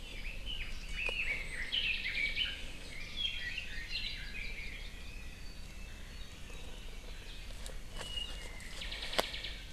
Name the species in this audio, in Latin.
Leiothrix lutea, Himatione sanguinea, Loxops mana